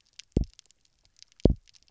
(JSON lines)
{"label": "biophony, double pulse", "recorder": "SoundTrap 300"}